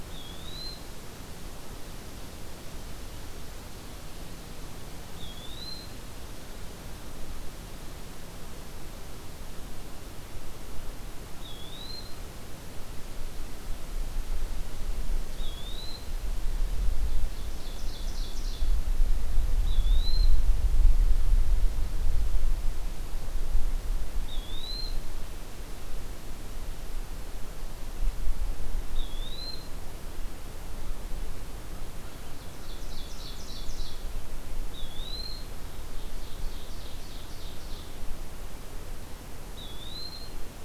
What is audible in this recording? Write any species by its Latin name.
Contopus virens, Seiurus aurocapilla, Corvus brachyrhynchos